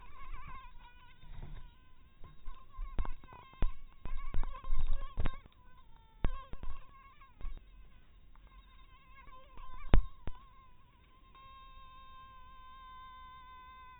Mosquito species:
mosquito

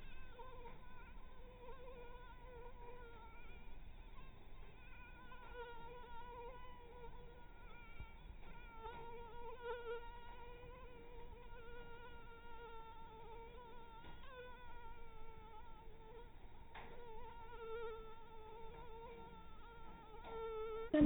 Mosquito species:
mosquito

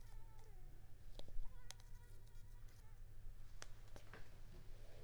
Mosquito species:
Culex pipiens complex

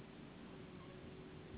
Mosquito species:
Anopheles gambiae s.s.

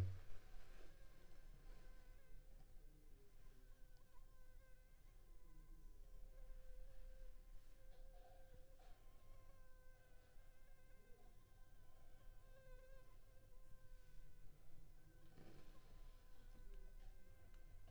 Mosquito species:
Anopheles funestus s.s.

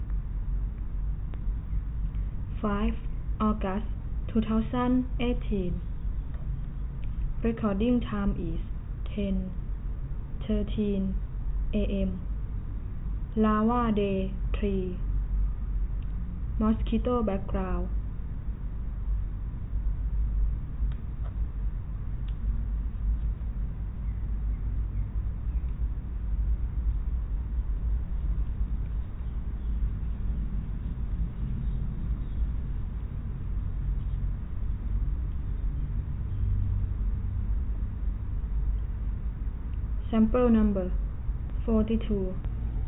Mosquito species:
no mosquito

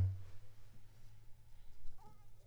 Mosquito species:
Anopheles squamosus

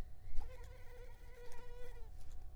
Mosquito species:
Culex tigripes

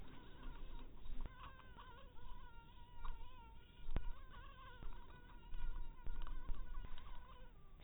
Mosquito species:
mosquito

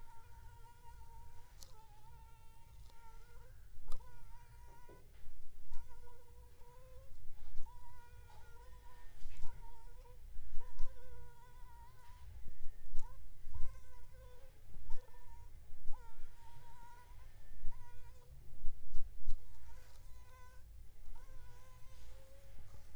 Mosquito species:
Anopheles funestus s.s.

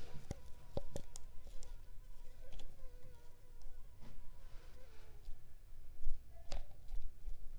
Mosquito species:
Culex pipiens complex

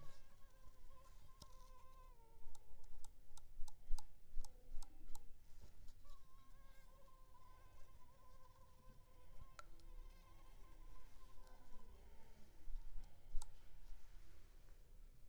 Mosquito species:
Culex pipiens complex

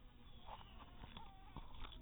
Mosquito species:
mosquito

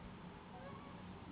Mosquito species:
Anopheles gambiae s.s.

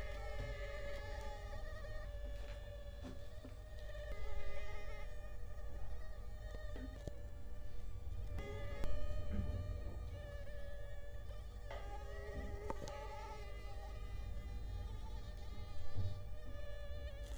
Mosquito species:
Culex quinquefasciatus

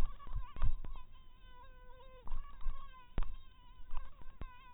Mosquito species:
mosquito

